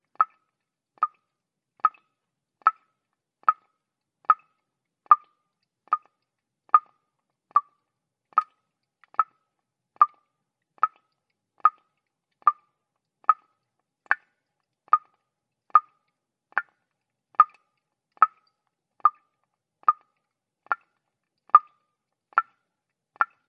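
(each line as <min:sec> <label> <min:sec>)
0:00.0 Waterdrops dripping in a continuous rhythm with short gaps in between. 0:23.5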